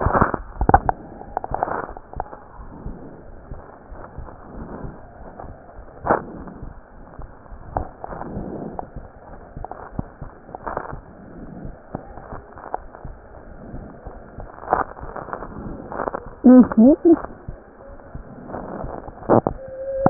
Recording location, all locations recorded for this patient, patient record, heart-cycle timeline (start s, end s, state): pulmonary valve (PV)
pulmonary valve (PV)+tricuspid valve (TV)+mitral valve (MV)
#Age: Adolescent
#Sex: Male
#Height: 149.0 cm
#Weight: 31.7 kg
#Pregnancy status: False
#Murmur: Unknown
#Murmur locations: nan
#Most audible location: nan
#Systolic murmur timing: nan
#Systolic murmur shape: nan
#Systolic murmur grading: nan
#Systolic murmur pitch: nan
#Systolic murmur quality: nan
#Diastolic murmur timing: nan
#Diastolic murmur shape: nan
#Diastolic murmur grading: nan
#Diastolic murmur pitch: nan
#Diastolic murmur quality: nan
#Outcome: Normal
#Campaign: 2015 screening campaign
0.00	2.33	unannotated
2.33	2.58	diastole
2.58	2.72	S1
2.72	2.82	systole
2.82	2.98	S2
2.98	3.28	diastole
3.28	3.38	S1
3.38	3.50	systole
3.50	3.62	S2
3.62	3.90	diastole
3.90	4.04	S1
4.04	4.14	systole
4.14	4.28	S2
4.28	4.54	diastole
4.54	4.68	S1
4.68	4.80	systole
4.80	4.92	S2
4.92	5.20	diastole
5.20	5.30	S1
5.30	5.40	systole
5.40	5.48	S2
5.48	5.78	diastole
5.78	5.88	S1
5.88	6.04	systole
6.04	6.16	S2
6.16	6.40	diastole
6.40	6.52	S1
6.52	6.60	systole
6.60	6.72	S2
6.72	6.93	diastole
6.93	7.06	S1
7.06	7.18	systole
7.18	7.28	S2
7.28	7.48	diastole
7.48	7.62	S1
7.62	7.73	systole
7.73	7.88	S2
7.88	8.10	diastole
8.10	8.92	unannotated
8.92	9.06	S2
9.06	9.30	diastole
9.30	9.42	S1
9.42	9.52	systole
9.52	9.66	S2
9.66	9.94	diastole
9.94	10.08	S1
10.08	10.18	systole
10.18	10.32	S2
10.32	10.66	diastole
10.66	20.10	unannotated